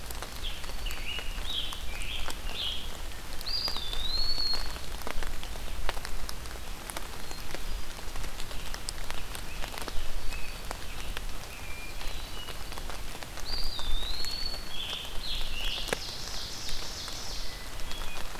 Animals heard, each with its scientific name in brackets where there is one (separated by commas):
Hermit Thrush (Catharus guttatus), Ovenbird (Seiurus aurocapilla), Scarlet Tanager (Piranga olivacea), Eastern Wood-Pewee (Contopus virens)